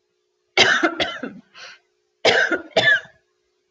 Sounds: Cough